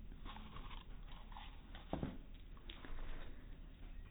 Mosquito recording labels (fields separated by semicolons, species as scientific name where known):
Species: mosquito; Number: one; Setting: cup